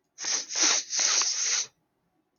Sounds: Sniff